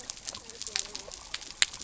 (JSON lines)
{"label": "biophony", "recorder": "SoundTrap 300"}